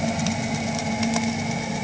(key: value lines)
label: anthrophony, boat engine
recorder: HydroMoth